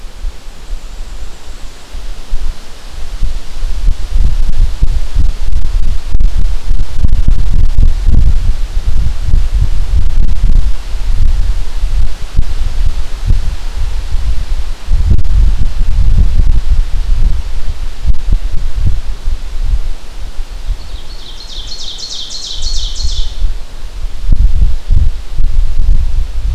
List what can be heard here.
Black-and-white Warbler, Ovenbird